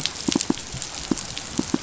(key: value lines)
label: biophony, pulse
recorder: SoundTrap 500